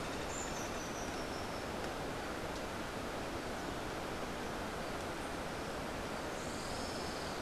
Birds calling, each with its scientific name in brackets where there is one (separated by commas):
Olivaceous Woodcreeper (Sittasomus griseicapillus), Rufous-tailed Hummingbird (Amazilia tzacatl)